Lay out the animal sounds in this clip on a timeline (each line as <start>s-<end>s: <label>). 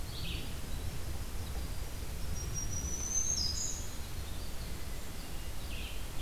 0.0s-0.7s: Red-eyed Vireo (Vireo olivaceus)
0.5s-5.4s: Winter Wren (Troglodytes hiemalis)
2.2s-4.1s: Black-throated Green Warbler (Setophaga virens)
5.5s-6.1s: Red-eyed Vireo (Vireo olivaceus)